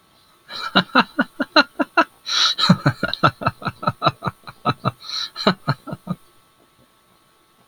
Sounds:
Laughter